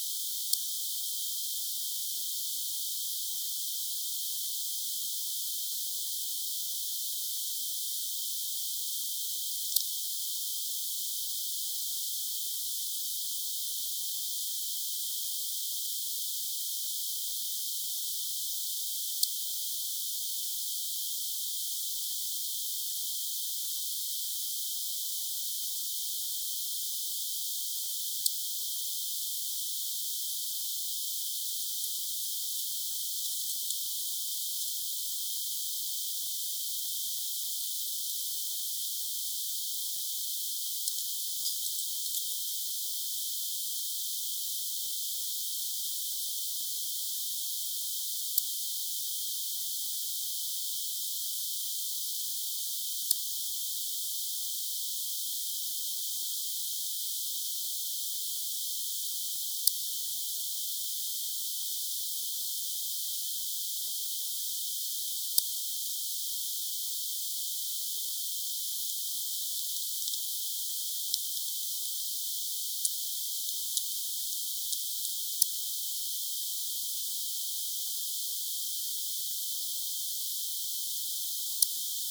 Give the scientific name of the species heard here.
Poecilimon hamatus